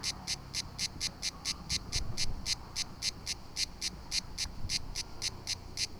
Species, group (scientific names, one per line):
Cicada orni
Cicadidae